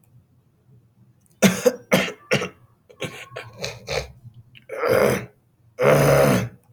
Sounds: Throat clearing